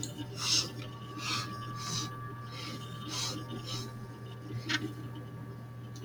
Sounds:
Sniff